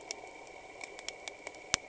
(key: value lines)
label: anthrophony, boat engine
recorder: HydroMoth